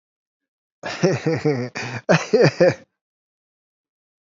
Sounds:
Laughter